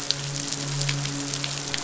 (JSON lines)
{"label": "biophony, midshipman", "recorder": "SoundTrap 500"}